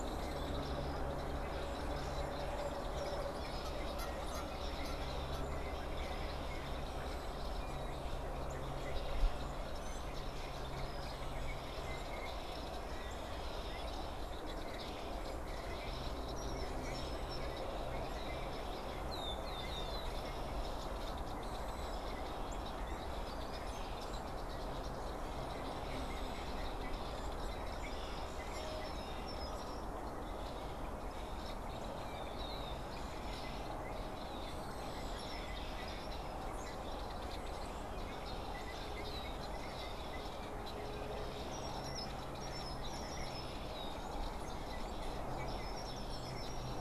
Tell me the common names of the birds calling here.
unidentified bird, Red-winged Blackbird, Canada Goose